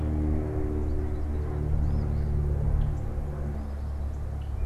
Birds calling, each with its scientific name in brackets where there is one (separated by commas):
Rusty Blackbird (Euphagus carolinus), Eastern Phoebe (Sayornis phoebe)